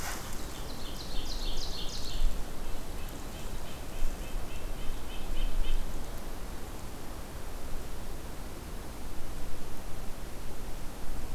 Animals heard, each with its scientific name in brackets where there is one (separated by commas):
Ovenbird (Seiurus aurocapilla), Red-breasted Nuthatch (Sitta canadensis)